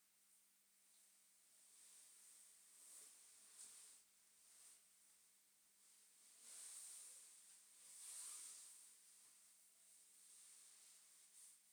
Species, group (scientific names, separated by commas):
Isophya modestior, Orthoptera